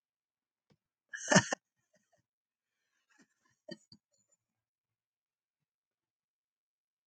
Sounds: Laughter